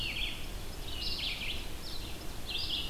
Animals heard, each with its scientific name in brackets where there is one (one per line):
Eastern Wood-Pewee (Contopus virens)
Red-eyed Vireo (Vireo olivaceus)